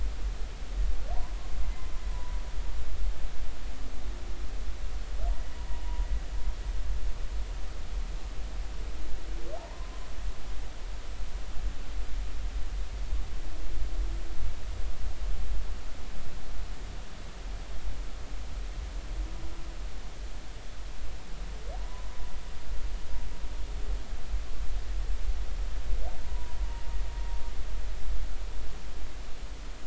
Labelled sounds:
2.1	2.4	humpback whale, 0.93 to 1.0 kHz
9.6	10.0	humpback whale, 0.80 to 1.1 kHz
21.8	22.1	humpback whale, 0.90 to 1.1 kHz
26.2	26.6	humpback whale, 0.93 to 1.0 kHz

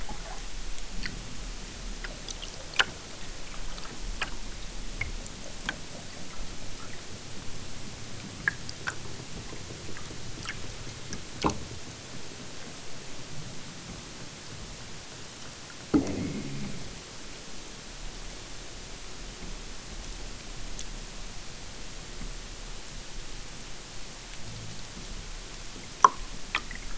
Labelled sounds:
15.9	16.9	killer whale, southern Alaska resident, 0 to 3.1 kHz

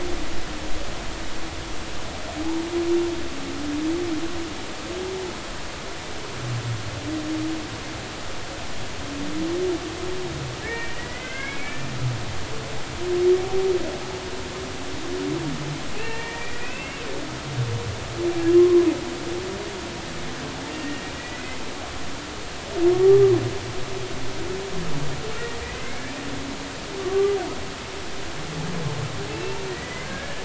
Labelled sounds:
10.6	11.8	humpback whale, 1.5 to 2.7 kHz
16.0	17.1	humpback whale, 0.86 to 2.8 kHz
18.6	18.9	humpback whale, 0.99 to 1.1 kHz
20.8	21.6	humpback whale, 1.8 to 2.1 kHz
23.0	23.4	humpback whale, 1.1 to 1.2 kHz
25.6	26.0	humpback whale, 1.9 to 2.3 kHz
27.0	27.4	humpback whale, 1.1 to 1.2 kHz
29.3	30.4	humpback whale, 1.6 to 2.8 kHz

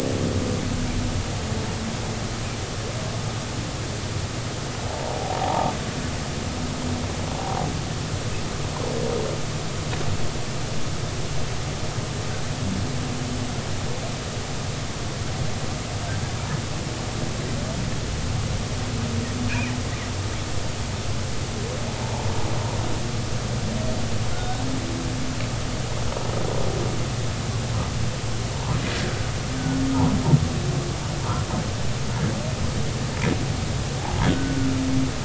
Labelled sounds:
4.9	5.7	humpback whale, 0.80 to 0.99 kHz
22.0	22.3	humpback whale, 0.80 to 0.99 kHz
24.3	24.6	humpback whale, 1.3 to 3.8 kHz
34.3	35.2	humpback whale, 0.80 to 1.6 kHz

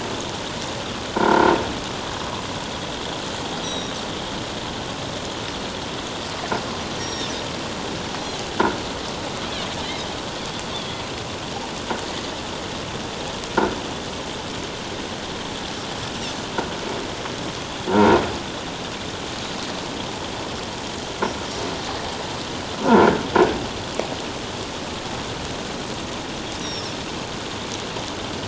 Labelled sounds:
1.1	1.5	croaking sound likely from a nearby submerged object, 0.88 to 1.6 kHz
3.6	3.9	Pacific white-sided dolphin, 3.7 to 5.9 kHz
7.0	7.3	Pacific white-sided dolphin, 3.4 to 5.7 kHz
10.7	11.0	Pacific white-sided dolphin, 3.2 to 3.6 kHz
17.9	18.2	croaking sound likely from a nearby submerged object, 1.3 to 1.6 kHz
22.8	23.1	croaking sound likely from a nearby submerged object, 1.3 to 1.6 kHz
26.6	26.9	Pacific white-sided dolphin, 5.0 to 6.0 kHz

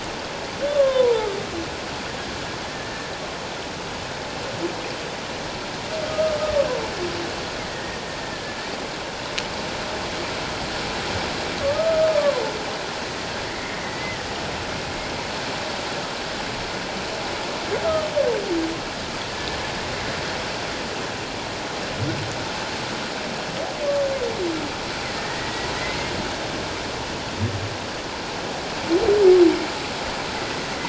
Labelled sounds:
0.7	1.3	humpback whale, 0.81 to 1.2 kHz
2.7	3.1	humpback whale, 1.7 to 1.8 kHz
6.0	6.4	humpback whale, 1.2 to 1.3 kHz
7.6	8.0	humpback whale, 1.8 to 2.2 kHz
11.6	12.4	humpback whale, 0.94 to 1.3 kHz
13.5	14.2	humpback whale, 1.9 to 2.2 kHz
19.3	19.6	humpback whale, 1.7 to 1.8 kHz
25.1	25.7	humpback whale, 1.8 to 2.0 kHz

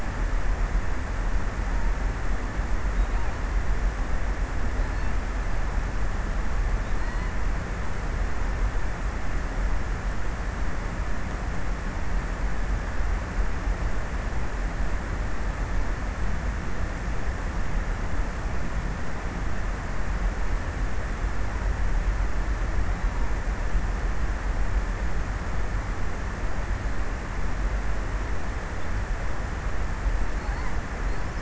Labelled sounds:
2.8	3.6	killer whale, offshore, 2.8 to 5.5 kHz
4.5	5.6	killer whale, offshore, 2.4 to 5.1 kHz
6.6	7.7	killer whale, offshore, 2.5 to 4.7 kHz
30.4	31.4	killer whale, offshore, 3.3 to 8.0 kHz

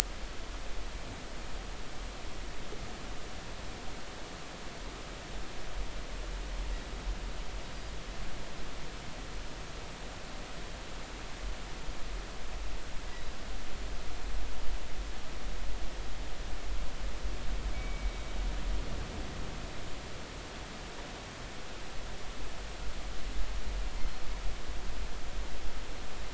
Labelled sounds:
17.7	18.1	killer whale, northern resident, G clan, 2.2 to 2.3 kHz
24.0	24.2	killer whale, northern resident, G clan, 4.1 to 4.3 kHz

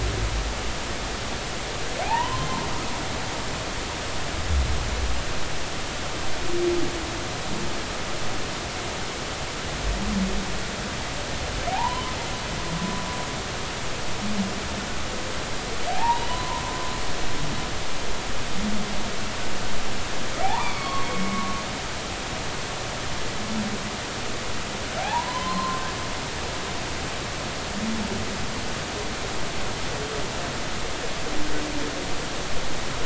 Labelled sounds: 2.0	2.5	humpback whale, 0.80 to 3.2 kHz
11.7	12.1	humpback whale, 0.80 to 1.1 kHz
15.9	16.6	humpback whale, 0.80 to 3.0 kHz
20.4	21.6	humpback whale, 0.80 to 2.5 kHz
25.5	26.8	humpback whale, 0.80 to 4.2 kHz

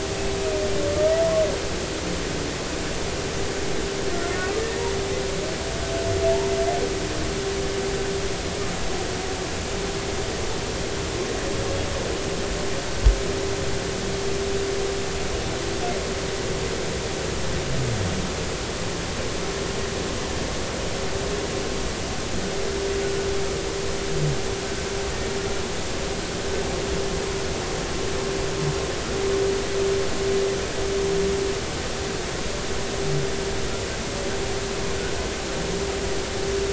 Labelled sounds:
4.6	4.9	humpback whale, 1.7 to 2.0 kHz

